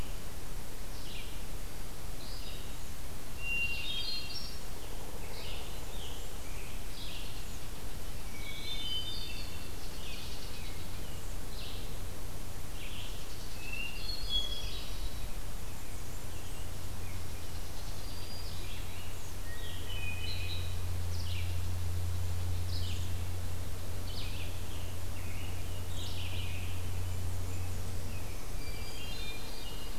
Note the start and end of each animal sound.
0.0s-26.5s: Red-eyed Vireo (Vireo olivaceus)
3.2s-4.8s: Hermit Thrush (Catharus guttatus)
5.1s-7.0s: Blackburnian Warbler (Setophaga fusca)
7.1s-11.1s: unknown mammal
8.0s-9.9s: Hermit Thrush (Catharus guttatus)
13.3s-15.1s: Hermit Thrush (Catharus guttatus)
15.3s-16.8s: Blackburnian Warbler (Setophaga fusca)
16.9s-18.7s: unknown mammal
17.2s-18.9s: Black-throated Green Warbler (Setophaga virens)
19.3s-21.1s: Hermit Thrush (Catharus guttatus)
24.3s-27.1s: Scarlet Tanager (Piranga olivacea)
27.7s-29.3s: Black-throated Green Warbler (Setophaga virens)
28.4s-30.0s: Hermit Thrush (Catharus guttatus)

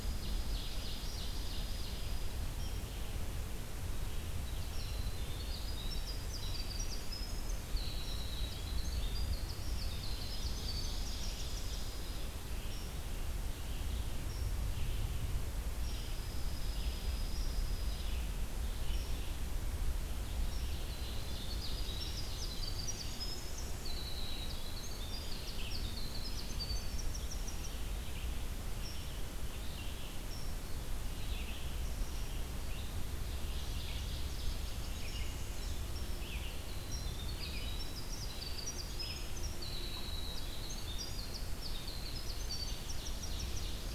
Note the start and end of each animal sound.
0.0s-2.0s: Ovenbird (Seiurus aurocapilla)
0.0s-2.4s: Dark-eyed Junco (Junco hyemalis)
0.0s-20.8s: Red-eyed Vireo (Vireo olivaceus)
4.8s-12.2s: Winter Wren (Troglodytes hiemalis)
10.3s-12.1s: Ovenbird (Seiurus aurocapilla)
15.8s-18.3s: Dark-eyed Junco (Junco hyemalis)
20.4s-22.7s: Ovenbird (Seiurus aurocapilla)
20.8s-27.6s: Winter Wren (Troglodytes hiemalis)
22.9s-43.9s: Red-eyed Vireo (Vireo olivaceus)
33.1s-34.9s: Ovenbird (Seiurus aurocapilla)
34.3s-35.9s: Blackburnian Warbler (Setophaga fusca)
36.7s-43.9s: Winter Wren (Troglodytes hiemalis)
42.5s-43.9s: Ovenbird (Seiurus aurocapilla)

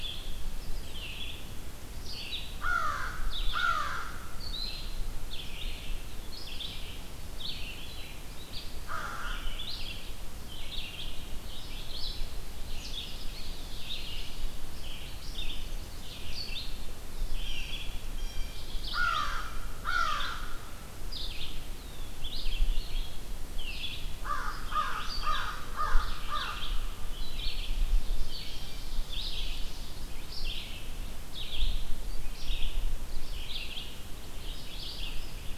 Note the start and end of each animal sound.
0.0s-28.7s: Red-eyed Vireo (Vireo olivaceus)
2.6s-4.5s: American Crow (Corvus brachyrhynchos)
8.7s-9.5s: American Crow (Corvus brachyrhynchos)
13.2s-14.2s: Eastern Wood-Pewee (Contopus virens)
17.3s-18.5s: Blue Jay (Cyanocitta cristata)
18.9s-20.4s: American Crow (Corvus brachyrhynchos)
21.5s-22.2s: Eastern Wood-Pewee (Contopus virens)
24.1s-26.6s: American Crow (Corvus brachyrhynchos)
27.3s-29.2s: Ovenbird (Seiurus aurocapilla)
29.0s-35.6s: Red-eyed Vireo (Vireo olivaceus)

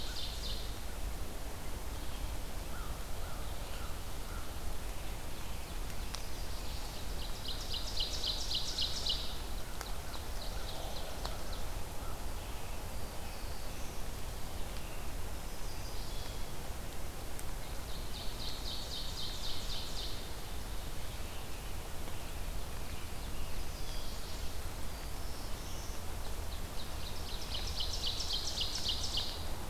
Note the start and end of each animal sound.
0.0s-0.9s: Ovenbird (Seiurus aurocapilla)
0.0s-3.9s: Red-eyed Vireo (Vireo olivaceus)
2.5s-4.7s: American Crow (Corvus brachyrhynchos)
5.3s-7.1s: Chestnut-sided Warbler (Setophaga pensylvanica)
6.7s-11.7s: Ovenbird (Seiurus aurocapilla)
10.0s-13.5s: American Crow (Corvus brachyrhynchos)
12.4s-14.3s: Black-throated Blue Warbler (Setophaga caerulescens)
15.1s-16.4s: Chestnut-sided Warbler (Setophaga pensylvanica)
16.0s-16.8s: Blue Jay (Cyanocitta cristata)
17.6s-20.4s: Ovenbird (Seiurus aurocapilla)
21.1s-23.7s: American Robin (Turdus migratorius)
23.3s-24.6s: Chestnut-sided Warbler (Setophaga pensylvanica)
24.5s-26.1s: Black-throated Blue Warbler (Setophaga caerulescens)
25.9s-29.7s: Ovenbird (Seiurus aurocapilla)

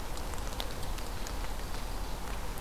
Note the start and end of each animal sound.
0.6s-2.3s: Ovenbird (Seiurus aurocapilla)

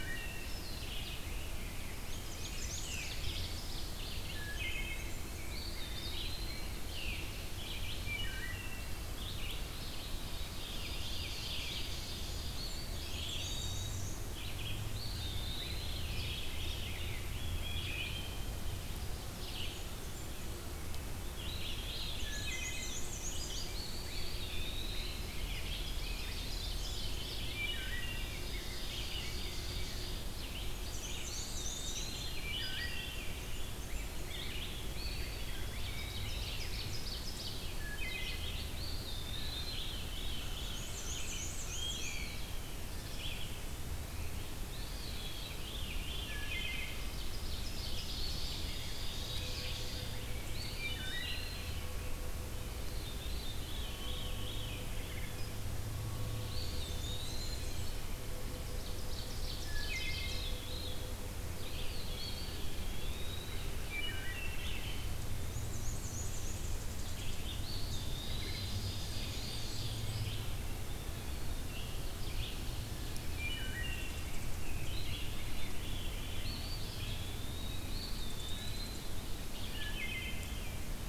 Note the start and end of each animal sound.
0.0s-81.1s: Red-eyed Vireo (Vireo olivaceus)
0.9s-3.5s: Rose-breasted Grosbeak (Pheucticus ludovicianus)
1.6s-3.6s: Black-and-white Warbler (Mniotilta varia)
1.9s-4.0s: Ovenbird (Seiurus aurocapilla)
4.0s-5.5s: Blackburnian Warbler (Setophaga fusca)
4.2s-5.2s: Wood Thrush (Hylocichla mustelina)
5.0s-6.9s: Rose-breasted Grosbeak (Pheucticus ludovicianus)
5.5s-6.7s: Eastern Wood-Pewee (Contopus virens)
6.9s-7.3s: Veery (Catharus fuscescens)
8.0s-9.0s: Wood Thrush (Hylocichla mustelina)
10.2s-12.5s: Ovenbird (Seiurus aurocapilla)
12.3s-14.0s: Eastern Wood-Pewee (Contopus virens)
12.4s-14.2s: Black-and-white Warbler (Mniotilta varia)
14.8s-17.2s: Veery (Catharus fuscescens)
14.9s-16.2s: Eastern Wood-Pewee (Contopus virens)
17.3s-18.8s: Blue Jay (Cyanocitta cristata)
17.6s-18.6s: Wood Thrush (Hylocichla mustelina)
19.0s-20.6s: Blackburnian Warbler (Setophaga fusca)
21.2s-23.2s: Veery (Catharus fuscescens)
21.5s-23.8s: Black-and-white Warbler (Mniotilta varia)
22.3s-23.0s: Wood Thrush (Hylocichla mustelina)
23.6s-26.5s: Rose-breasted Grosbeak (Pheucticus ludovicianus)
23.7s-25.3s: Eastern Wood-Pewee (Contopus virens)
25.1s-27.3s: Ovenbird (Seiurus aurocapilla)
26.3s-27.8s: Veery (Catharus fuscescens)
27.5s-28.3s: Wood Thrush (Hylocichla mustelina)
27.9s-30.3s: Ovenbird (Seiurus aurocapilla)
28.2s-30.3s: Rose-breasted Grosbeak (Pheucticus ludovicianus)
30.6s-32.6s: Black-and-white Warbler (Mniotilta varia)
31.2s-32.5s: Eastern Wood-Pewee (Contopus virens)
32.3s-33.2s: Wood Thrush (Hylocichla mustelina)
32.5s-33.8s: Veery (Catharus fuscescens)
33.1s-34.5s: Blackburnian Warbler (Setophaga fusca)
33.8s-36.8s: Rose-breasted Grosbeak (Pheucticus ludovicianus)
34.9s-36.8s: Eastern Wood-Pewee (Contopus virens)
35.5s-37.7s: Ovenbird (Seiurus aurocapilla)
37.7s-38.5s: Wood Thrush (Hylocichla mustelina)
38.7s-40.1s: Eastern Wood-Pewee (Contopus virens)
39.5s-41.3s: Veery (Catharus fuscescens)
40.4s-42.5s: Black-and-white Warbler (Mniotilta varia)
41.7s-42.4s: Wood Thrush (Hylocichla mustelina)
41.9s-45.6s: Eastern Wood-Pewee (Contopus virens)
45.2s-47.0s: Veery (Catharus fuscescens)
46.2s-47.0s: Wood Thrush (Hylocichla mustelina)
46.9s-50.3s: Ovenbird (Seiurus aurocapilla)
50.4s-52.0s: Eastern Wood-Pewee (Contopus virens)
50.8s-51.6s: Wood Thrush (Hylocichla mustelina)
52.6s-55.4s: Veery (Catharus fuscescens)
56.3s-58.1s: Eastern Wood-Pewee (Contopus virens)
56.4s-58.1s: Blackburnian Warbler (Setophaga fusca)
58.4s-60.6s: Ovenbird (Seiurus aurocapilla)
59.3s-61.3s: Veery (Catharus fuscescens)
59.6s-60.4s: Wood Thrush (Hylocichla mustelina)
61.4s-63.8s: Eastern Wood-Pewee (Contopus virens)
63.7s-64.8s: Wood Thrush (Hylocichla mustelina)
65.0s-66.8s: Black-and-white Warbler (Mniotilta varia)
66.2s-67.5s: unidentified call
67.4s-68.9s: Eastern Wood-Pewee (Contopus virens)
68.0s-70.5s: Ovenbird (Seiurus aurocapilla)
68.8s-70.3s: Blackburnian Warbler (Setophaga fusca)
69.3s-70.0s: Eastern Wood-Pewee (Contopus virens)
71.7s-73.5s: Ovenbird (Seiurus aurocapilla)
73.3s-74.2s: Wood Thrush (Hylocichla mustelina)
73.4s-74.6s: unidentified call
74.5s-75.8s: Rose-breasted Grosbeak (Pheucticus ludovicianus)
74.9s-76.7s: Veery (Catharus fuscescens)
76.3s-79.2s: Eastern Wood-Pewee (Contopus virens)
78.1s-79.1s: unidentified call
79.5s-81.0s: Veery (Catharus fuscescens)
79.7s-80.6s: Wood Thrush (Hylocichla mustelina)

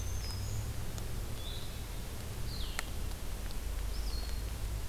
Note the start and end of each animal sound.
0.0s-0.7s: Black-throated Green Warbler (Setophaga virens)
0.0s-4.9s: Blue-headed Vireo (Vireo solitarius)

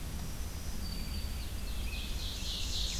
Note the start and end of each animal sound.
0.0s-1.9s: Black-throated Green Warbler (Setophaga virens)
0.0s-3.0s: Red-eyed Vireo (Vireo olivaceus)
1.2s-3.0s: Ovenbird (Seiurus aurocapilla)
1.7s-3.0s: Scarlet Tanager (Piranga olivacea)

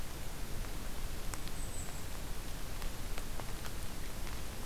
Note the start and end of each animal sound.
1.1s-2.1s: Golden-crowned Kinglet (Regulus satrapa)

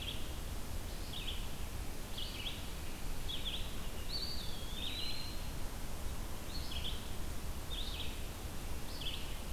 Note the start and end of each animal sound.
0.0s-9.5s: Red-eyed Vireo (Vireo olivaceus)
3.9s-5.7s: Eastern Wood-Pewee (Contopus virens)

